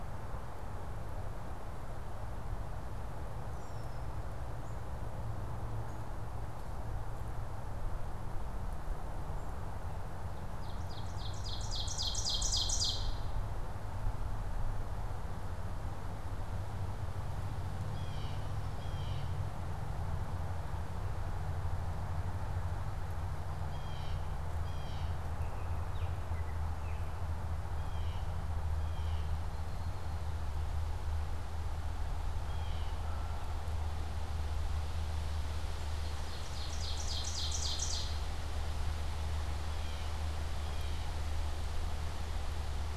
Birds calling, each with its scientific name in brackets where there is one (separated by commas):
Ovenbird (Seiurus aurocapilla), Red-winged Blackbird (Agelaius phoeniceus), Blue Jay (Cyanocitta cristata)